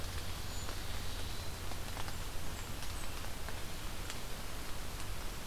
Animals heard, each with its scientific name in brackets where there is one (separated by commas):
Blackburnian Warbler (Setophaga fusca), Eastern Wood-Pewee (Contopus virens), Cedar Waxwing (Bombycilla cedrorum)